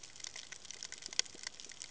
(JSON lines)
{"label": "ambient", "recorder": "HydroMoth"}